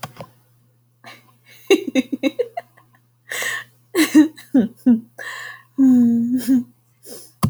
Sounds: Laughter